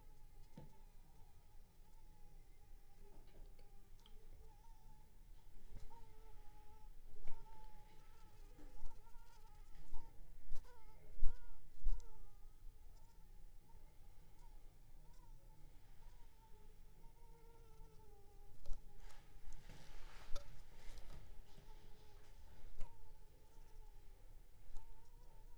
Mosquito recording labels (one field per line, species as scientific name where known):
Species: Anopheles funestus s.s.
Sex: female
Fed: unfed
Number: one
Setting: cup